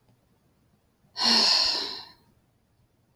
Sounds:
Sigh